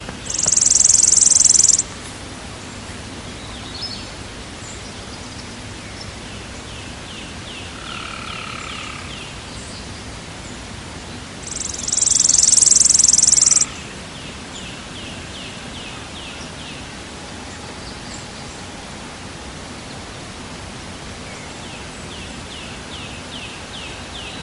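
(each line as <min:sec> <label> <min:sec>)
0:00.2 A bird chirps rapidly. 0:01.9
0:03.4 A bird is singing. 0:04.2
0:06.3 A bird chirps repetitively. 0:09.4
0:11.7 A bird chirps rapidly. 0:13.8
0:13.6 A bird chirps repetitively. 0:17.1
0:21.2 A bird chirps repetitively. 0:24.4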